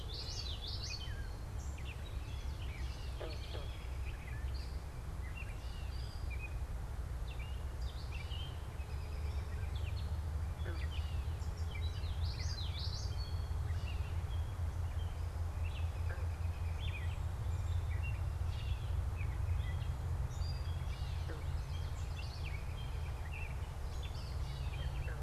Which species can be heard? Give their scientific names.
Geothlypis trichas, Dumetella carolinensis, Turdus migratorius